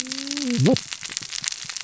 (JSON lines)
{"label": "biophony, cascading saw", "recorder": "SoundTrap 600 or HydroMoth"}